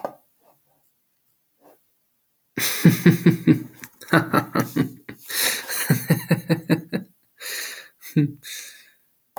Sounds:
Laughter